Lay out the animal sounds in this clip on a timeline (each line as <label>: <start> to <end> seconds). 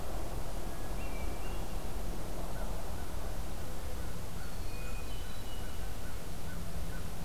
Hermit Thrush (Catharus guttatus): 0.5 to 1.9 seconds
American Crow (Corvus brachyrhynchos): 3.8 to 7.2 seconds
Hermit Thrush (Catharus guttatus): 4.7 to 6.0 seconds